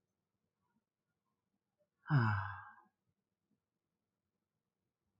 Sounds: Sigh